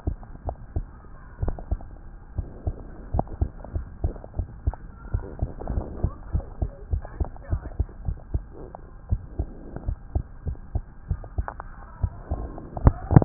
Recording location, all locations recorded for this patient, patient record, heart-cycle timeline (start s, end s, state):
tricuspid valve (TV)
aortic valve (AV)+pulmonary valve (PV)+tricuspid valve (TV)+mitral valve (MV)
#Age: Child
#Sex: Male
#Height: 104.0 cm
#Weight: 19.8 kg
#Pregnancy status: False
#Murmur: Absent
#Murmur locations: nan
#Most audible location: nan
#Systolic murmur timing: nan
#Systolic murmur shape: nan
#Systolic murmur grading: nan
#Systolic murmur pitch: nan
#Systolic murmur quality: nan
#Diastolic murmur timing: nan
#Diastolic murmur shape: nan
#Diastolic murmur grading: nan
#Diastolic murmur pitch: nan
#Diastolic murmur quality: nan
#Outcome: Normal
#Campaign: 2015 screening campaign
0.00	1.40	unannotated
1.40	1.56	S1
1.56	1.68	systole
1.68	1.80	S2
1.80	2.34	diastole
2.34	2.46	S1
2.46	2.63	systole
2.63	2.76	S2
2.76	3.10	diastole
3.10	3.25	S1
3.25	3.38	systole
3.38	3.50	S2
3.50	3.72	diastole
3.72	3.86	S1
3.86	4.00	systole
4.00	4.16	S2
4.16	4.34	diastole
4.34	4.50	S1
4.50	4.64	systole
4.64	4.80	S2
4.80	5.09	diastole
5.09	5.24	S1
5.24	5.38	systole
5.38	5.50	S2
5.50	5.72	diastole
5.72	5.84	S1
5.84	6.00	systole
6.00	6.14	S2
6.14	6.32	diastole
6.32	6.46	S1
6.46	6.59	systole
6.59	6.72	S2
6.72	6.88	diastole
6.88	7.04	S1
7.04	7.16	systole
7.16	7.30	S2
7.30	7.47	diastole
7.47	7.64	S1
7.64	7.76	systole
7.76	7.88	S2
7.88	8.05	diastole
8.05	8.18	S1
8.18	8.30	systole
8.30	8.42	S2
8.42	9.08	diastole
9.08	9.20	S1
9.20	9.36	systole
9.36	9.48	S2
9.48	9.84	diastole
9.84	9.98	S1
9.98	10.12	systole
10.12	10.26	S2
10.26	10.44	diastole
10.44	10.58	S1
10.58	10.72	systole
10.72	10.86	S2
10.86	11.06	diastole
11.06	11.18	S1
11.18	11.34	systole
11.34	11.48	S2
11.48	11.99	diastole
11.99	12.12	S1
12.12	12.28	systole
12.28	12.41	S2
12.41	13.25	unannotated